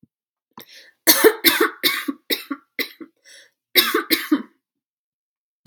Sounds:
Cough